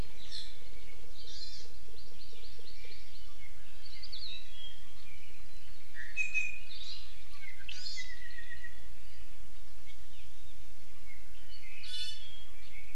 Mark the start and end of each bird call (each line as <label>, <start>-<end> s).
Hawaii Amakihi (Chlorodrepanis virens), 1.3-3.4 s
Hawaii Akepa (Loxops coccineus), 3.9-4.5 s
Iiwi (Drepanis coccinea), 6.0-6.9 s
Apapane (Himatione sanguinea), 7.3-8.9 s
Hawaii Amakihi (Chlorodrepanis virens), 7.7-8.2 s
Iiwi (Drepanis coccinea), 11.8-12.6 s